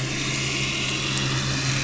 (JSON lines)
{"label": "anthrophony, boat engine", "recorder": "SoundTrap 500"}